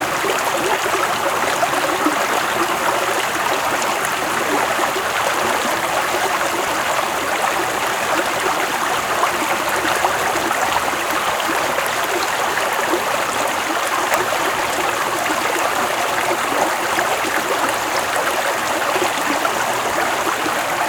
Is this the sound of liquid?
yes